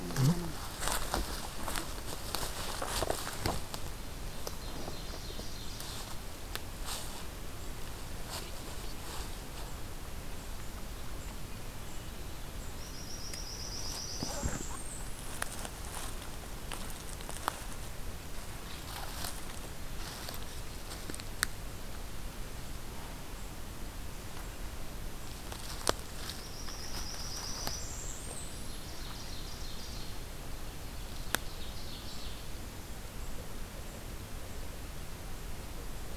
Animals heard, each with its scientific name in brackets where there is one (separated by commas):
Blackburnian Warbler (Setophaga fusca), Ovenbird (Seiurus aurocapilla)